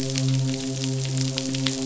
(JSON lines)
{"label": "biophony, midshipman", "recorder": "SoundTrap 500"}